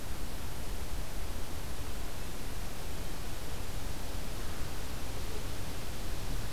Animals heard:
forest ambience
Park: Marsh-Billings-Rockefeller National Historical Park